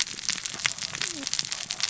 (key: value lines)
label: biophony, cascading saw
recorder: SoundTrap 600 or HydroMoth